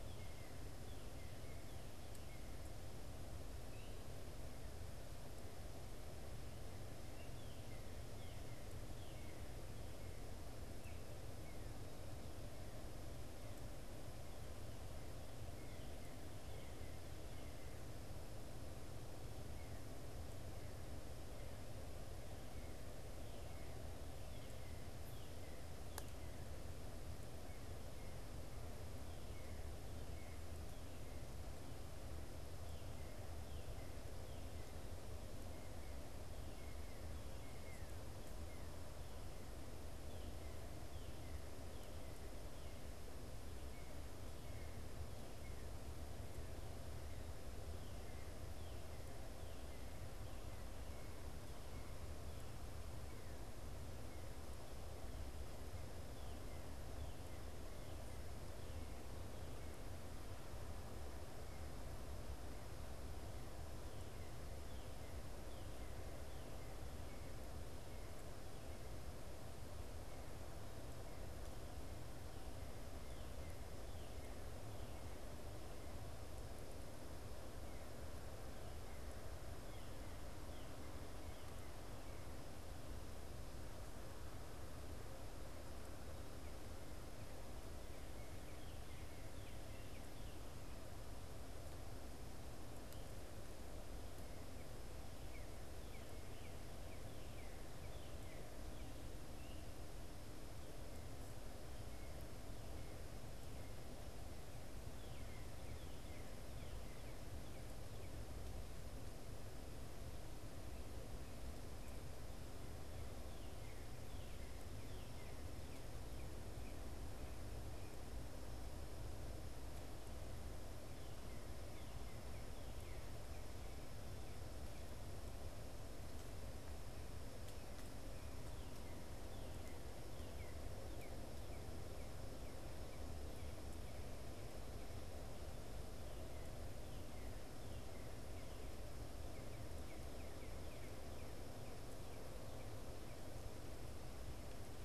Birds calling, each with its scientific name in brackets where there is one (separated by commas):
Northern Cardinal (Cardinalis cardinalis), Gray Catbird (Dumetella carolinensis)